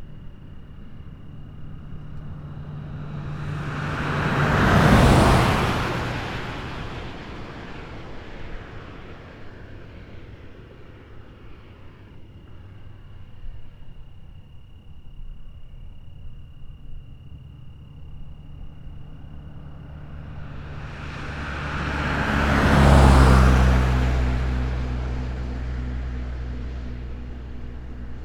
Does the sound come closer and then go further away?
yes